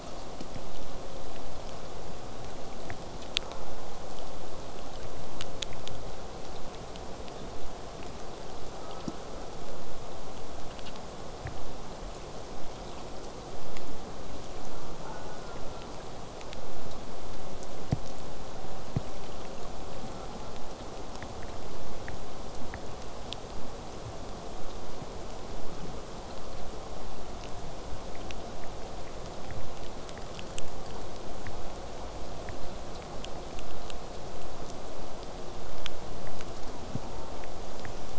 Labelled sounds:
8.8	9.6	killer whale, southern resident, J pod, call S04, 0.38 to 1.4 kHz
15.0	15.9	killer whale, southern resident, J pod, call S04, 0.17 to 1.6 kHz

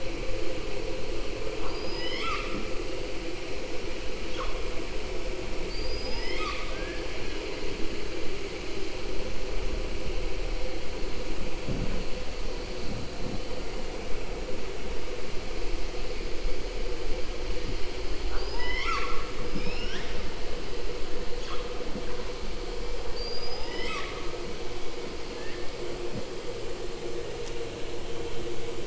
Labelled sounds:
5.6	7.4	killer whale, southern resident, 0.65 to 7.9 kHz
18.2	19.4	killer whale, southern resident, 0.84 to 7.0 kHz
23.0	24.3	killer whale, southern resident, 0.84 to 7.8 kHz

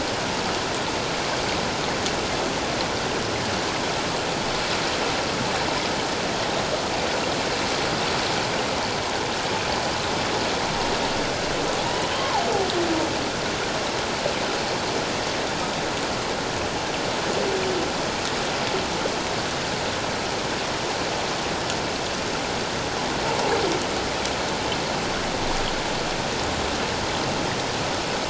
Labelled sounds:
11.9	12.4	humpback whale, 0.78 to 3.2 kHz

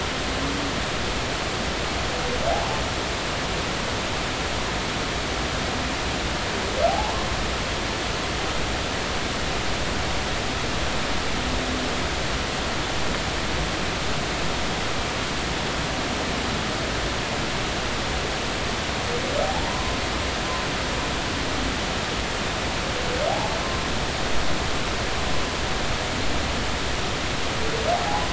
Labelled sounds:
6.9	7.3	humpback whale, 0.80 to 1.1 kHz
19.4	20.0	humpback whale, 0.80 to 1.1 kHz

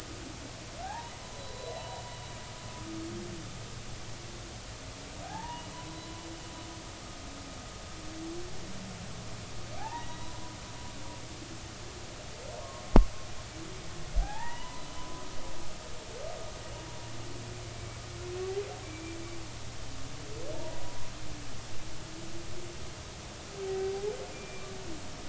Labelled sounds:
1.1	2.0	humpback whale, 0.80 to 4.0 kHz
5.2	6.0	humpback whale, 0.80 to 3.0 kHz
9.8	10.3	humpback whale, 0.80 to 4.1 kHz
14.2	15.2	humpback whale, 0.80 to 3.1 kHz
18.8	19.2	humpback whale, 2.3 to 2.4 kHz
20.5	21.1	humpback whale, 0.86 to 1.1 kHz
24.3	24.7	humpback whale, 2.3 to 2.4 kHz

